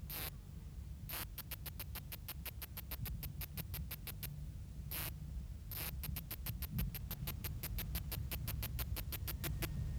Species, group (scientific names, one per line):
Kikihia muta
Cicadidae